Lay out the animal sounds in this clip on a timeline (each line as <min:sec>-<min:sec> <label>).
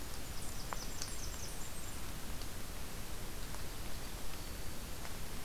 0:00.0-0:02.1 Blackburnian Warbler (Setophaga fusca)
0:04.1-0:05.1 Black-throated Green Warbler (Setophaga virens)